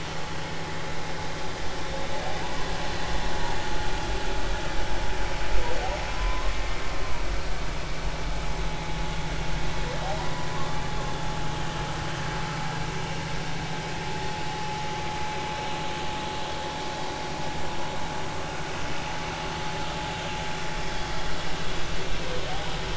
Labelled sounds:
6.1	6.8	humpback whale, 0.93 to 1.2 kHz
10.2	10.5	humpback whale, 0.93 to 1.1 kHz

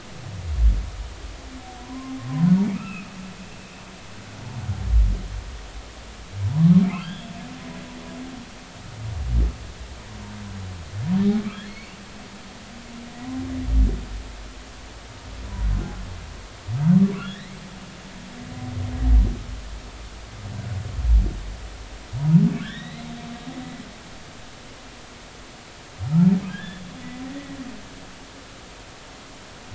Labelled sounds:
1.8	2.1	humpback whale, 0.93 to 1.1 kHz
2.7	3.1	humpback whale, 1.2 to 2.8 kHz
6.8	7.4	humpback whale, 2.0 to 3.5 kHz
11.6	12.0	humpback whale, 2.1 to 4.6 kHz
17.2	17.5	humpback whale, 1.6 to 4.1 kHz
22.6	23.1	humpback whale, 1.3 to 4.1 kHz
26.5	26.9	humpback whale, 1.5 to 3.6 kHz

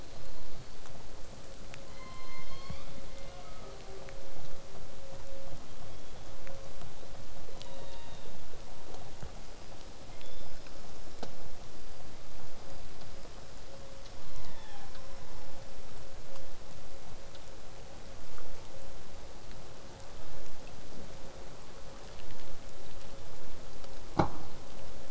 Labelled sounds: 1.9	3.8	killer whale, southern resident, call S01, 0.58 to 6.9 kHz
5.6	6.3	killer whale, southern resident, 3.1 to 3.6 kHz
7.4	8.4	killer whale, southern resident, 0.77 to 4.3 kHz
10.1	10.7	killer whale, southern resident, call S16, 2.0 to 3.7 kHz
14.2	15.0	killer whale, southern resident, 0.66 to 4.3 kHz

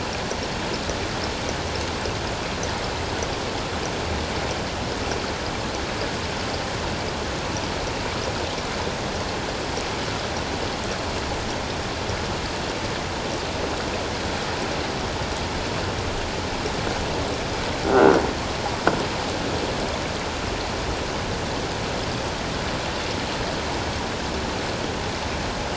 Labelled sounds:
17.9	18.2	croaking sound likely from a nearby submerged object, 1.3 to 1.6 kHz

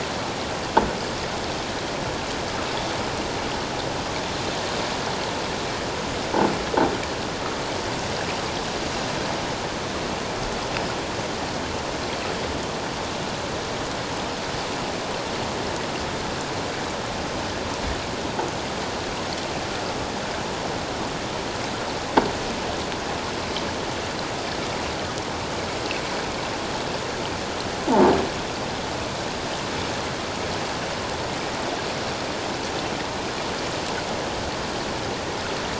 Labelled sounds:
27.9	28.2	croaking sound likely from a nearby submerged object, 0.78 to 0.97 kHz

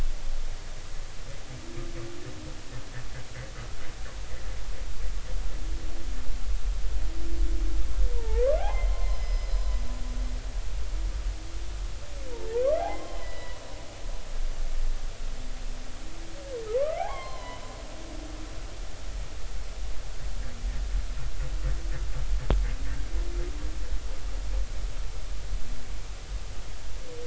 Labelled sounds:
8.1	9.7	humpback whale, 0.80 to 5.2 kHz
12.3	13.6	humpback whale, 0.80 to 5.2 kHz
17.0	17.6	humpback whale, 0.80 to 4.3 kHz

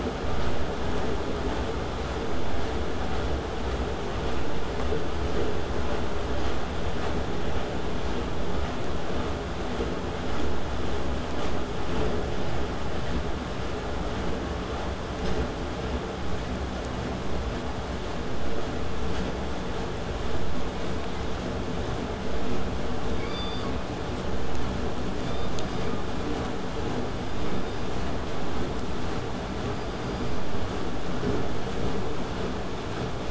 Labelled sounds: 23.2	23.7	killer whale, southern resident, K pod, call S16, 0.95 to 4.9 kHz
25.2	26.0	killer whale, southern resident, K pod, call S16, 1.0 to 5.1 kHz

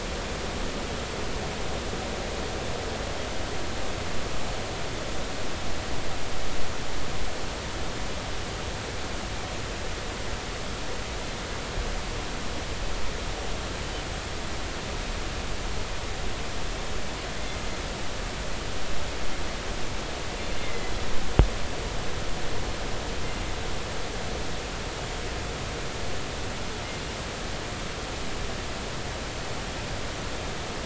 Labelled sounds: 20.6	20.9	killer whale, northern resident, 1.9 to 2.2 kHz

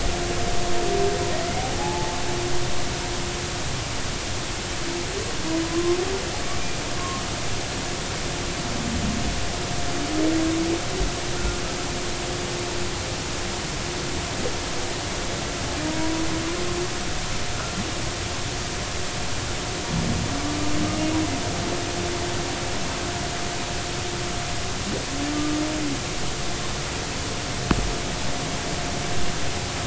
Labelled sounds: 1.6	2.2	humpback whale, 0.80 to 0.93 kHz
5.6	6.0	humpback whale, 0.93 to 1.1 kHz
7.0	7.2	humpback whale, 1.0 to 1.1 kHz
11.3	11.6	humpback whale, 1.3 to 1.6 kHz
15.8	16.2	humpback whale, 0.90 to 0.99 kHz

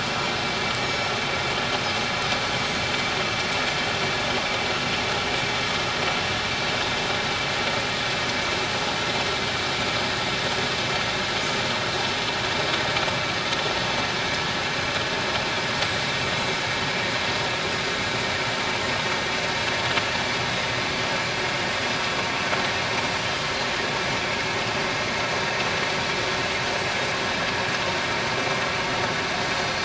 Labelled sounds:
0.8	1.1	Pacific white-sided dolphin, 5.2 to 5.6 kHz
29.6	29.8	Pacific white-sided dolphin, 4.3 to 4.4 kHz

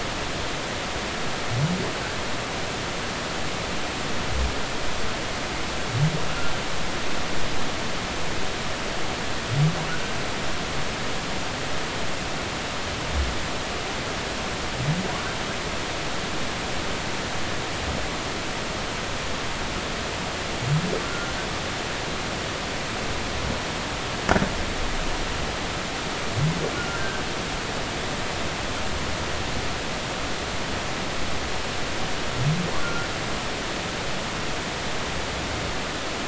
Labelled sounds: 9.9	10.1	humpback whale, 1.3 to 1.6 kHz
21.0	21.3	humpback whale, 1.3 to 1.5 kHz
26.8	27.2	humpback whale, 1.3 to 1.7 kHz
32.8	33.1	humpback whale, 1.3 to 1.6 kHz

